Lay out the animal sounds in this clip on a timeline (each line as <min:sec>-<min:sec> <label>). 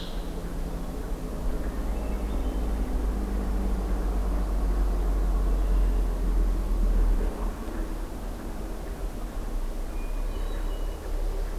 0:01.6-0:02.9 Hermit Thrush (Catharus guttatus)
0:05.5-0:06.2 Red-winged Blackbird (Agelaius phoeniceus)
0:09.8-0:11.0 Hermit Thrush (Catharus guttatus)